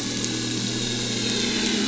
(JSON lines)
{"label": "anthrophony, boat engine", "recorder": "SoundTrap 500"}